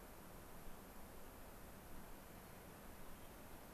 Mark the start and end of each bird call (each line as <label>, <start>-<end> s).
unidentified bird, 2.4-2.7 s
unidentified bird, 3.0-3.4 s